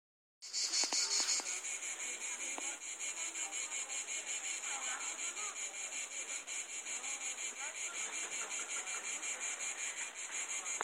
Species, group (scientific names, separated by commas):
Cicada orni, Cicadidae